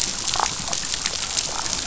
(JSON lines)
{"label": "biophony, damselfish", "recorder": "SoundTrap 500"}